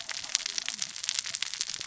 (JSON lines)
{"label": "biophony, cascading saw", "recorder": "SoundTrap 600 or HydroMoth"}